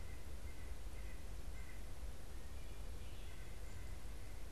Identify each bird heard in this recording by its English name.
White-breasted Nuthatch